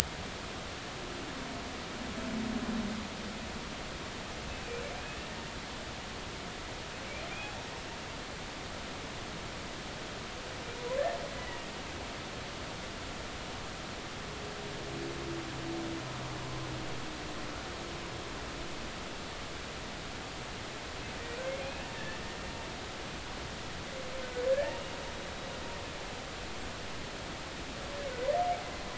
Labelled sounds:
11.3	11.7	humpback whale, 1.9 to 3.0 kHz
21.6	22.2	humpback whale, 1.7 to 2.8 kHz
24.5	25.0	humpback whale, 1.6 to 2.9 kHz

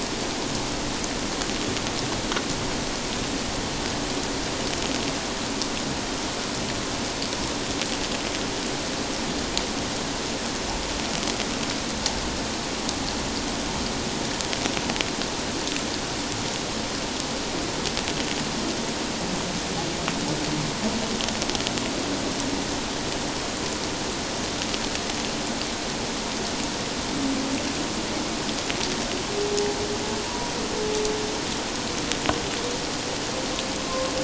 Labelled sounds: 30.2	30.5	humpback whale, 0.91 to 1.0 kHz
33.8	34.1	humpback whale, 1.0 to 1.1 kHz

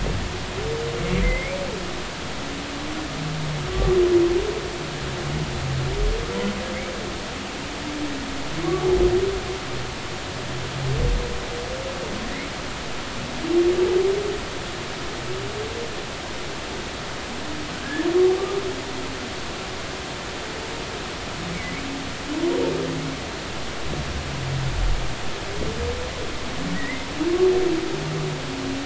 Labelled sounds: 1.2	1.6	humpback whale, 1.9 to 2.4 kHz
8.6	8.9	humpback whale, 1.1 to 1.2 kHz
17.8	18.1	humpback whale, 1.6 to 1.9 kHz
26.7	27.1	humpback whale, 1.8 to 2.1 kHz

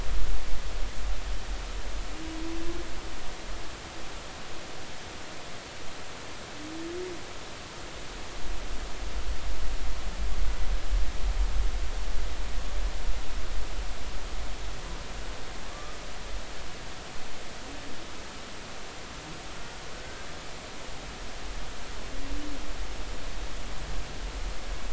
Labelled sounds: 15.7	16.0	humpback whale, 1.1 to 1.3 kHz
19.9	20.3	humpback whale, 1.5 to 1.6 kHz

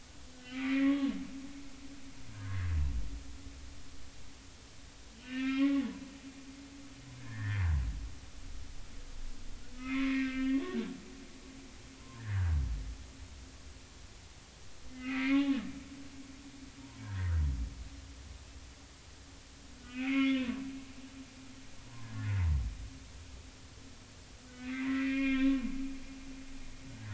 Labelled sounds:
0.4	1.1	humpback whale, 1.0 to 2.5 kHz
2.3	2.7	humpback whale, 0.93 to 1.8 kHz
5.2	5.9	humpback whale, 1.0 to 2.9 kHz
7.2	7.7	humpback whale, 1.6 to 2.1 kHz
9.8	12.6	humpback whale, 0.90 to 3.0 kHz
14.9	15.4	humpback whale, 1.2 to 2.5 kHz
17.0	17.4	humpback whale, 1.2 to 1.8 kHz
19.8	20.5	humpback whale, 1.4 to 2.8 kHz
21.8	22.5	humpback whale, 0.93 to 2.1 kHz
24.8	25.6	humpback whale, 0.99 to 3.8 kHz

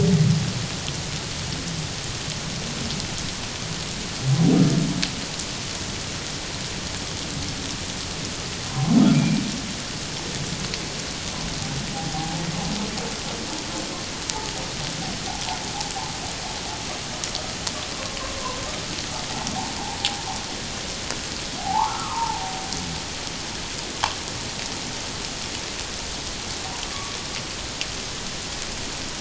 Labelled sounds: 8.7	9.4	humpback whale, 0.94 to 2.4 kHz
11.9	12.4	humpback whale, 0.78 to 1.1 kHz
21.6	22.6	humpback whale, 0.78 to 1.5 kHz
26.9	27.2	humpback whale, 1.1 to 1.2 kHz

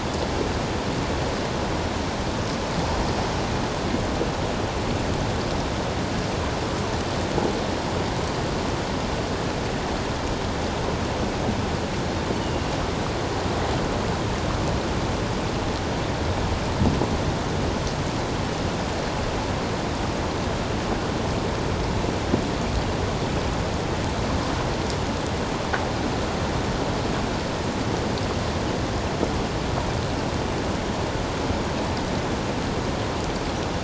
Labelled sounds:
12.3	12.7	Pacific white-sided dolphin, 2.7 to 3.0 kHz

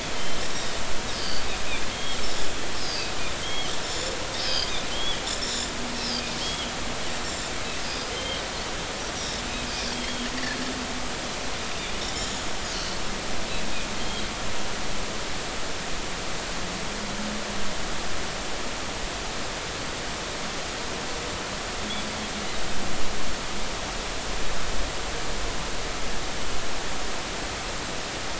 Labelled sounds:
0.2	1.5	Pacific white-sided dolphin, 3.0 to 5.0 kHz
1.9	3.1	Pacific white-sided dolphin, 3.1 to 5.2 kHz
3.4	5.2	Pacific white-sided dolphin, 2.8 to 7.3 kHz
6.4	6.7	Pacific white-sided dolphin, 2.9 to 3.4 kHz
7.2	7.5	Pacific white-sided dolphin, 7.0 to 7.5 kHz
8.1	8.4	Pacific white-sided dolphin, 2.9 to 3.3 kHz
9.9	10.3	Pacific white-sided dolphin, 3.2 to 3.4 kHz

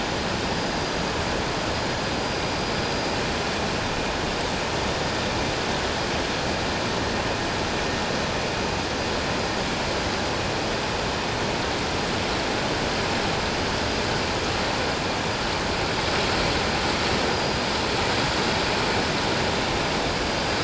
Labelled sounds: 17.3	17.6	vessel noise, 4.8 to 4.9 kHz

